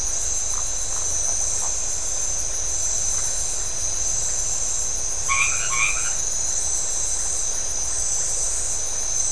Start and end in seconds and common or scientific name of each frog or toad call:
0.8	1.1	Phyllomedusa distincta
5.3	6.2	white-edged tree frog